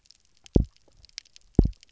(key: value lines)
label: biophony, double pulse
recorder: SoundTrap 300